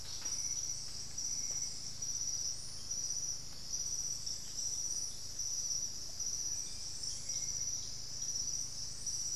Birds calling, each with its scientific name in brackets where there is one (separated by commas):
Russet-backed Oropendola (Psarocolius angustifrons), Ringed Woodpecker (Celeus torquatus)